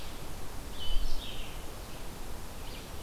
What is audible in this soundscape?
Red-eyed Vireo, Eastern Wood-Pewee